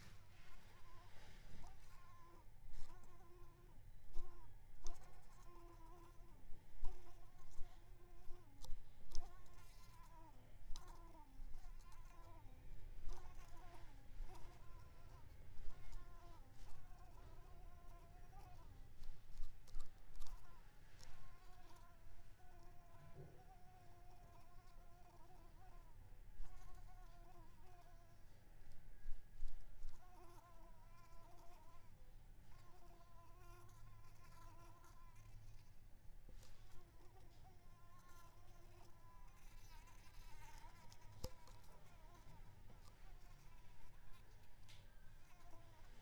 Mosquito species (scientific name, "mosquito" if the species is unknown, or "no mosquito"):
Mansonia africanus